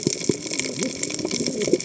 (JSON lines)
{"label": "biophony, cascading saw", "recorder": "HydroMoth"}